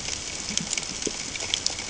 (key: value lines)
label: ambient
recorder: HydroMoth